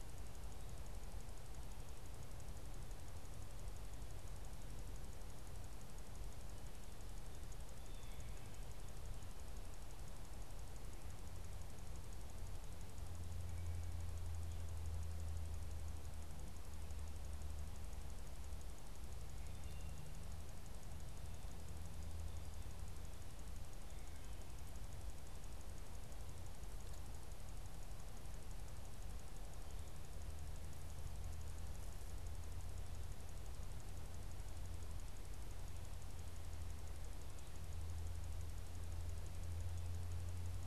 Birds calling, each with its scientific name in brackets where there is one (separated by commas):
Blue Jay (Cyanocitta cristata)